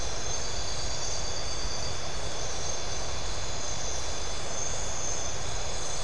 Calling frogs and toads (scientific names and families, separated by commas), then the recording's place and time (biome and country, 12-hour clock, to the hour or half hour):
none
Atlantic Forest, Brazil, 1am